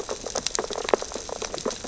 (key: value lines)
label: biophony, sea urchins (Echinidae)
recorder: SoundTrap 600 or HydroMoth